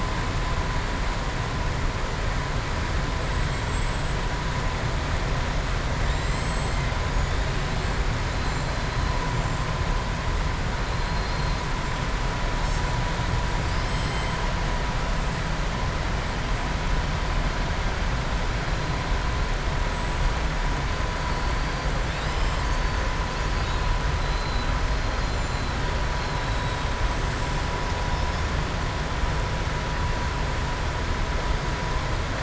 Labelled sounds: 6.0	6.8	killer whale, southern resident, 3.6 to 7.9 kHz
26.1	26.8	killer whale, southern resident, 3.3 to 4.4 kHz

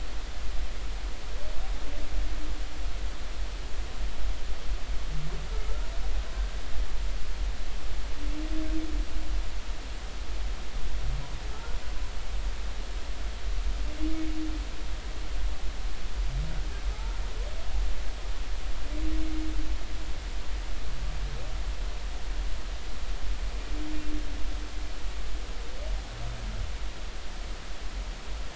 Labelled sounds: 5.6	5.9	humpback whale, 1.2 to 1.5 kHz

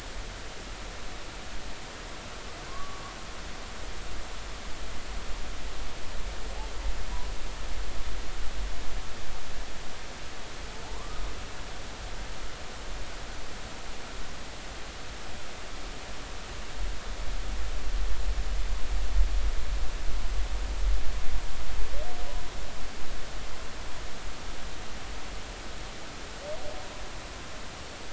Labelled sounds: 2.7	3.1	humpback whale, 0.99 to 1.2 kHz
10.8	11.3	humpback whale, 0.80 to 1.5 kHz

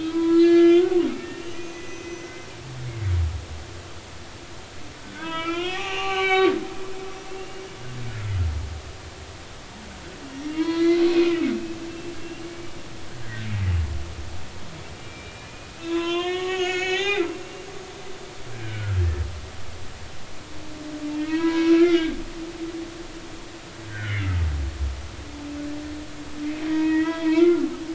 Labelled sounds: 0.0	2.5	humpback whale, 0.93 to 6.1 kHz
5.0	6.5	humpback whale, 0.80 to 4.6 kHz
7.4	7.6	humpback whale, 2.7 to 2.9 kHz
10.5	11.5	humpback whale, 0.93 to 5.8 kHz
11.9	12.8	humpback whale, 2.2 to 2.9 kHz
15.0	19.0	humpback whale, 0.80 to 6.8 kHz
21.2	22.5	humpback whale, 0.93 to 3.7 kHz
23.9	24.3	humpback whale, 1.4 to 3.0 kHz
26.7	27.7	humpback whale, 0.90 to 3.4 kHz

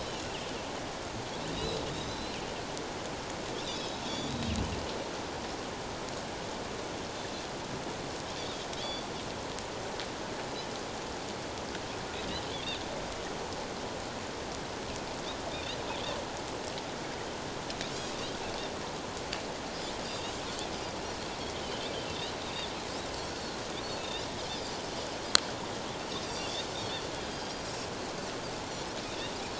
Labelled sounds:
1.5	2.4	Pacific white-sided dolphin, 3.7 to 4.2 kHz
3.7	4.5	Pacific white-sided dolphin, 3.2 to 4.7 kHz
8.8	9.1	Pacific white-sided dolphin, 3.1 to 4.7 kHz
15.5	15.8	Pacific white-sided dolphin, 3.5 to 4.1 kHz
20.0	20.3	Pacific white-sided dolphin, 3.5 to 5.0 kHz
22.4	22.7	Pacific white-sided dolphin, 3.4 to 3.8 kHz
26.3	26.7	Pacific white-sided dolphin, 3.4 to 4.8 kHz
27.3	27.7	Pacific white-sided dolphin, 3.2 to 4.9 kHz

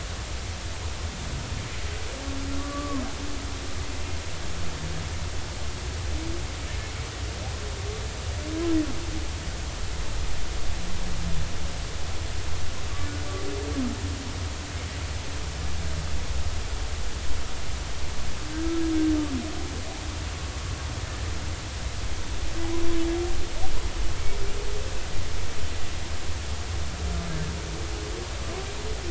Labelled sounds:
2.6	3.0	humpback whale, 0.99 to 1.2 kHz

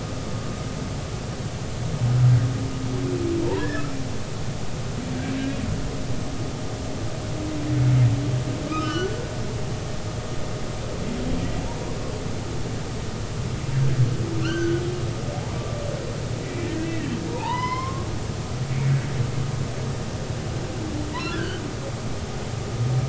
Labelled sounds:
3.6	3.8	humpback whale, 1.6 to 1.9 kHz
8.7	9.2	humpback whale, 1.1 to 3.1 kHz
14.4	14.8	humpback whale, 1.3 to 6.3 kHz
15.6	15.8	humpback whale, 1.1 to 1.2 kHz
16.4	18.9	humpback whale, 0.80 to 5.4 kHz
21.2	21.6	humpback whale, 1.3 to 3.3 kHz

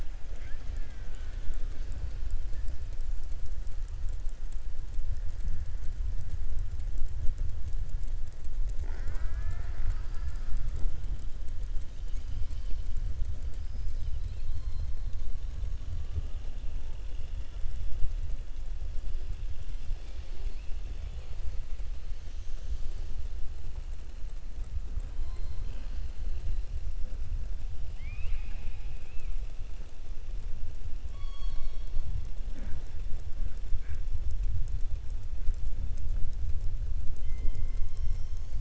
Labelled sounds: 0.3	1.8	killer whale, southern resident, 0.34 to 3.4 kHz
27.9	29.3	killer whale, southern resident, 0.84 to 4.8 kHz
31.1	32.0	killer whale, southern resident, 2.3 to 5.5 kHz

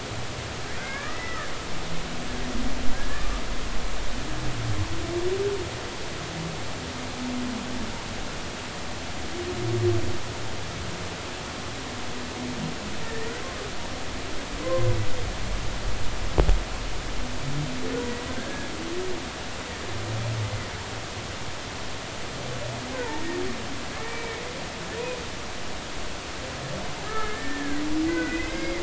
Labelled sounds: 0.8	1.5	humpback whale, 1.1 to 2.4 kHz
2.9	3.4	humpback whale, 1.1 to 1.9 kHz
13.0	13.4	humpback whale, 1.7 to 2.0 kHz
18.4	18.7	humpback whale, 1.5 to 1.7 kHz
23.9	24.4	humpback whale, 2.1 to 2.4 kHz
27.0	28.8	humpback whale, 1.2 to 4.9 kHz

